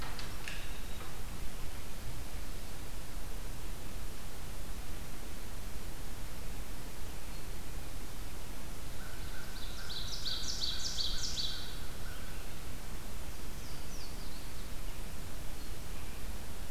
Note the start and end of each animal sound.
[8.72, 12.87] American Crow (Corvus brachyrhynchos)
[9.36, 11.88] Ovenbird (Seiurus aurocapilla)
[13.20, 14.91] Louisiana Waterthrush (Parkesia motacilla)

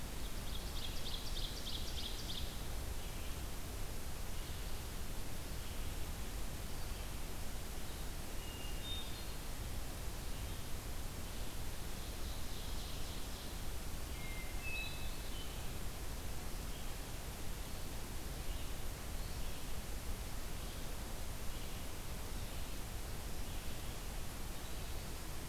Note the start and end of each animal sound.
[0.00, 2.61] Ovenbird (Seiurus aurocapilla)
[0.00, 25.49] Red-eyed Vireo (Vireo olivaceus)
[8.28, 9.57] Hermit Thrush (Catharus guttatus)
[11.91, 13.68] Ovenbird (Seiurus aurocapilla)
[13.99, 15.86] Hermit Thrush (Catharus guttatus)

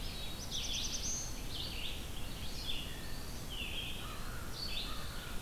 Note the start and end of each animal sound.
[0.00, 1.59] Black-throated Blue Warbler (Setophaga caerulescens)
[0.00, 5.41] Red-eyed Vireo (Vireo olivaceus)
[2.78, 3.43] Blue Jay (Cyanocitta cristata)
[3.92, 5.41] American Crow (Corvus brachyrhynchos)

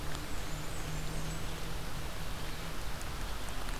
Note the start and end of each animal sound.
[0.00, 1.68] Blackburnian Warbler (Setophaga fusca)

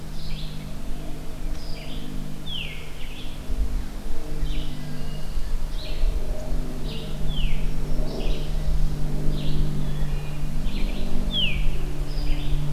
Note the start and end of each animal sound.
[0.00, 12.73] Red-eyed Vireo (Vireo olivaceus)
[2.27, 2.84] Veery (Catharus fuscescens)
[4.55, 5.56] Wood Thrush (Hylocichla mustelina)
[7.22, 7.70] Veery (Catharus fuscescens)
[9.63, 10.55] Wood Thrush (Hylocichla mustelina)
[11.18, 11.81] Veery (Catharus fuscescens)

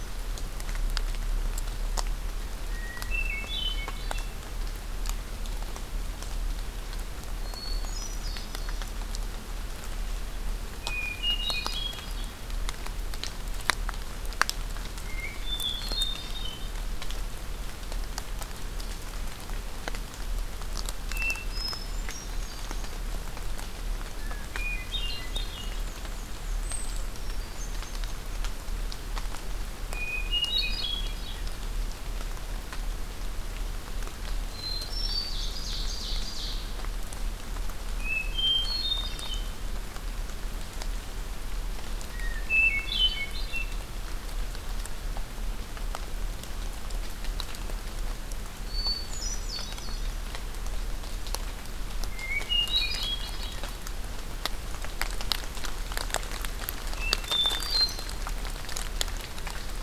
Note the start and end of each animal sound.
[2.64, 4.33] Hermit Thrush (Catharus guttatus)
[7.33, 8.83] Hermit Thrush (Catharus guttatus)
[10.78, 12.32] Hermit Thrush (Catharus guttatus)
[14.92, 16.66] Hermit Thrush (Catharus guttatus)
[20.98, 22.95] Hermit Thrush (Catharus guttatus)
[24.16, 25.66] Hermit Thrush (Catharus guttatus)
[25.19, 26.75] Black-and-white Warbler (Mniotilta varia)
[27.10, 28.37] Hermit Thrush (Catharus guttatus)
[29.88, 31.49] Hermit Thrush (Catharus guttatus)
[34.48, 35.45] Hermit Thrush (Catharus guttatus)
[35.18, 36.70] Ovenbird (Seiurus aurocapilla)
[37.94, 39.65] Hermit Thrush (Catharus guttatus)
[42.09, 43.87] Hermit Thrush (Catharus guttatus)
[48.63, 50.17] Hermit Thrush (Catharus guttatus)
[52.12, 53.62] Hermit Thrush (Catharus guttatus)
[56.89, 58.23] Hermit Thrush (Catharus guttatus)

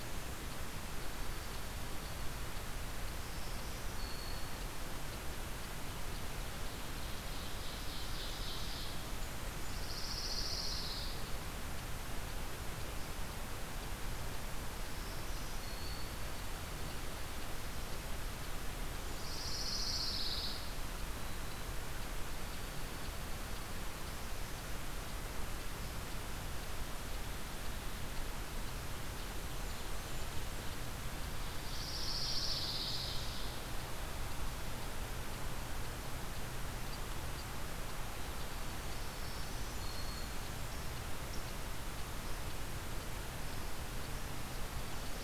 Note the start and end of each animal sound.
[0.85, 2.54] Dark-eyed Junco (Junco hyemalis)
[2.87, 4.83] Black-throated Green Warbler (Setophaga virens)
[6.65, 9.11] Ovenbird (Seiurus aurocapilla)
[9.64, 11.28] Pine Warbler (Setophaga pinus)
[14.86, 16.30] Black-throated Green Warbler (Setophaga virens)
[19.09, 20.71] Pine Warbler (Setophaga pinus)
[20.82, 21.81] Black-throated Green Warbler (Setophaga virens)
[22.25, 24.20] Dark-eyed Junco (Junco hyemalis)
[31.17, 33.44] Ovenbird (Seiurus aurocapilla)
[31.57, 33.54] Pine Warbler (Setophaga pinus)
[38.80, 40.66] Black-throated Green Warbler (Setophaga virens)

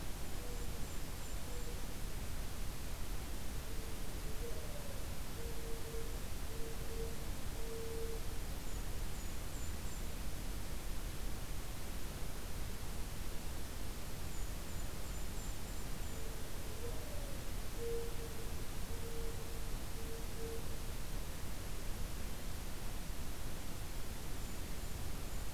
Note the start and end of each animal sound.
[0.23, 1.83] Golden-crowned Kinglet (Regulus satrapa)
[4.06, 8.64] Mourning Dove (Zenaida macroura)
[8.47, 10.24] Golden-crowned Kinglet (Regulus satrapa)
[14.09, 16.40] Golden-crowned Kinglet (Regulus satrapa)
[15.93, 20.96] Mourning Dove (Zenaida macroura)
[24.12, 25.53] Golden-crowned Kinglet (Regulus satrapa)

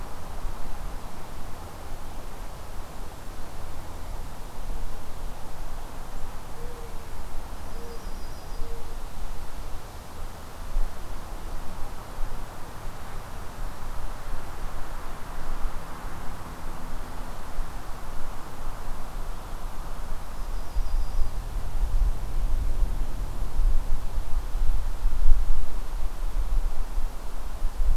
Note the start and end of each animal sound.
[2.74, 3.38] Golden-crowned Kinglet (Regulus satrapa)
[6.33, 8.98] Mourning Dove (Zenaida macroura)
[7.46, 8.87] Yellow-rumped Warbler (Setophaga coronata)
[20.26, 21.52] Yellow-rumped Warbler (Setophaga coronata)

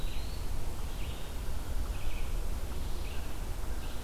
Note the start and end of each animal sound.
[0.00, 4.03] Red-eyed Vireo (Vireo olivaceus)
[3.00, 4.03] American Crow (Corvus brachyrhynchos)

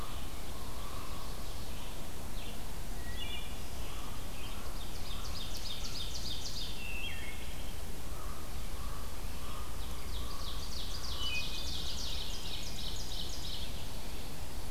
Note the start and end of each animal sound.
[0.00, 1.40] Common Raven (Corvus corax)
[0.00, 1.80] Ovenbird (Seiurus aurocapilla)
[0.00, 14.70] Red-eyed Vireo (Vireo olivaceus)
[2.86, 3.87] Wood Thrush (Hylocichla mustelina)
[4.28, 6.93] Ovenbird (Seiurus aurocapilla)
[5.69, 6.48] American Crow (Corvus brachyrhynchos)
[6.72, 7.85] Wood Thrush (Hylocichla mustelina)
[7.91, 11.93] Common Raven (Corvus corax)
[9.36, 14.01] Ovenbird (Seiurus aurocapilla)
[11.05, 11.93] Wood Thrush (Hylocichla mustelina)
[11.95, 12.85] Veery (Catharus fuscescens)

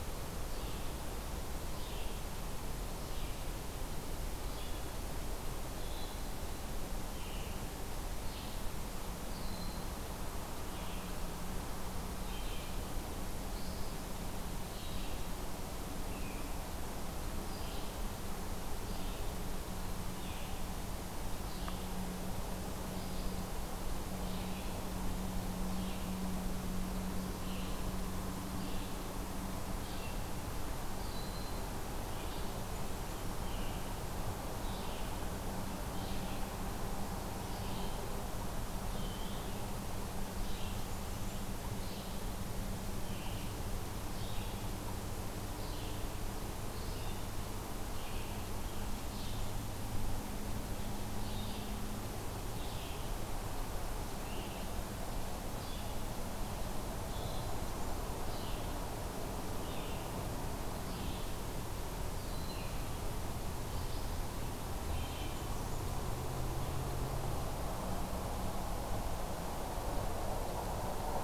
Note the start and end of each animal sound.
[0.00, 65.58] Red-eyed Vireo (Vireo olivaceus)
[5.79, 6.35] Hermit Thrush (Catharus guttatus)
[9.25, 9.90] Eastern Wood-Pewee (Contopus virens)
[16.08, 16.54] Broad-winged Hawk (Buteo platypterus)
[17.44, 17.92] Eastern Wood-Pewee (Contopus virens)
[30.94, 31.74] Broad-winged Hawk (Buteo platypterus)
[38.85, 39.55] Eastern Wood-Pewee (Contopus virens)
[40.85, 41.53] Blackburnian Warbler (Setophaga fusca)
[62.17, 62.87] Broad-winged Hawk (Buteo platypterus)
[64.65, 65.94] Blackburnian Warbler (Setophaga fusca)

